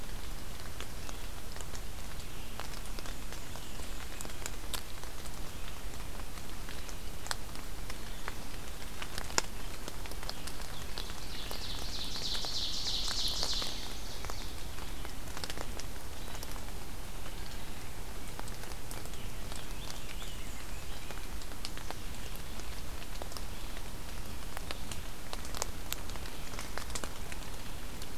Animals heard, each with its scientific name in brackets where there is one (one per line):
Scarlet Tanager (Piranga olivacea)
Black-and-white Warbler (Mniotilta varia)
Red-eyed Vireo (Vireo olivaceus)
Ovenbird (Seiurus aurocapilla)